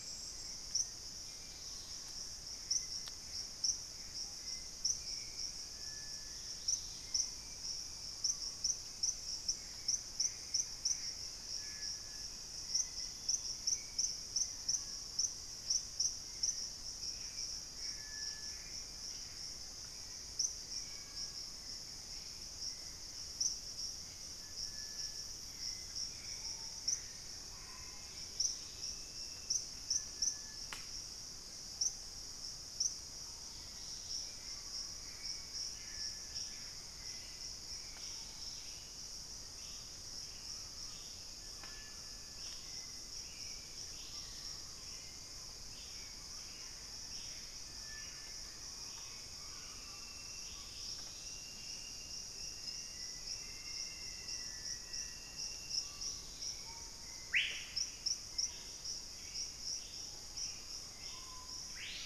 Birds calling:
Gray Antbird (Cercomacra cinerascens), Black-faced Antthrush (Formicarius analis), Screaming Piha (Lipaugus vociferans), Buff-breasted Wren (Cantorchilus leucotis), Purple-throated Fruitcrow (Querula purpurata), Dusky-capped Greenlet (Pachysylvia hypoxantha), Hauxwell's Thrush (Turdus hauxwelli)

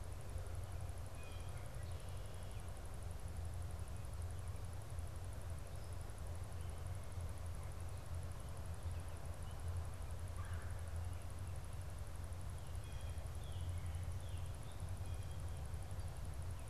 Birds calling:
Canada Goose (Branta canadensis), Blue Jay (Cyanocitta cristata)

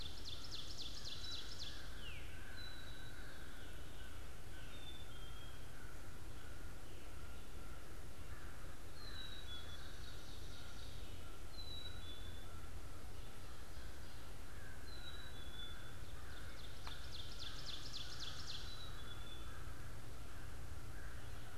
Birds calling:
American Crow (Corvus brachyrhynchos), Ovenbird (Seiurus aurocapilla), Black-capped Chickadee (Poecile atricapillus), Veery (Catharus fuscescens)

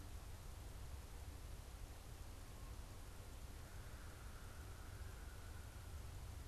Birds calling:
unidentified bird

